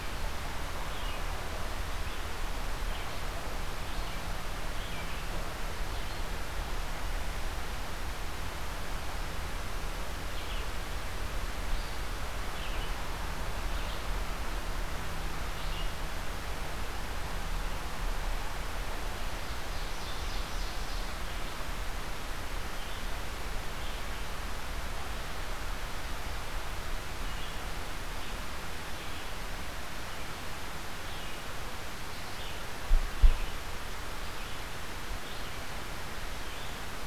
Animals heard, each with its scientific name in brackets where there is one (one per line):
Red-eyed Vireo (Vireo olivaceus)
Ovenbird (Seiurus aurocapilla)